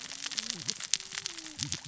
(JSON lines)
{"label": "biophony, cascading saw", "recorder": "SoundTrap 600 or HydroMoth"}